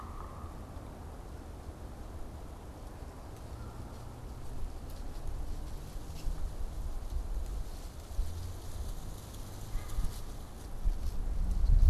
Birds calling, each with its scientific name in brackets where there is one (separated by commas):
Yellow-bellied Sapsucker (Sphyrapicus varius)